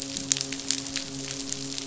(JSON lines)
{"label": "biophony, midshipman", "recorder": "SoundTrap 500"}